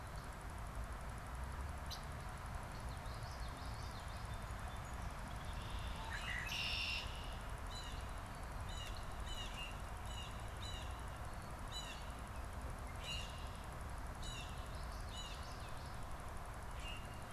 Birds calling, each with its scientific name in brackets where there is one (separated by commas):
Song Sparrow (Melospiza melodia), Common Grackle (Quiscalus quiscula), Common Yellowthroat (Geothlypis trichas), Red-winged Blackbird (Agelaius phoeniceus), Blue Jay (Cyanocitta cristata)